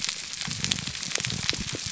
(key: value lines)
label: biophony, grouper groan
recorder: SoundTrap 300